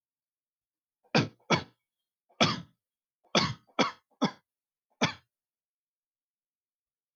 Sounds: Cough